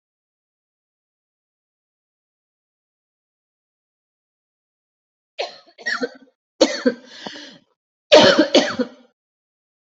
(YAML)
expert_labels:
- quality: good
  cough_type: wet
  dyspnea: false
  wheezing: false
  stridor: false
  choking: false
  congestion: false
  nothing: true
  diagnosis: lower respiratory tract infection
  severity: mild
age: 31
gender: female
respiratory_condition: false
fever_muscle_pain: false
status: healthy